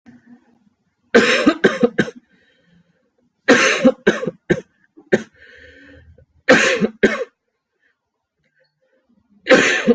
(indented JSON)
{
  "expert_labels": [
    {
      "quality": "good",
      "cough_type": "wet",
      "dyspnea": false,
      "wheezing": false,
      "stridor": false,
      "choking": false,
      "congestion": false,
      "nothing": true,
      "diagnosis": "lower respiratory tract infection",
      "severity": "mild"
    }
  ],
  "age": 23,
  "gender": "male",
  "respiratory_condition": false,
  "fever_muscle_pain": false,
  "status": "symptomatic"
}